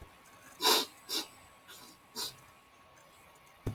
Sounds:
Sniff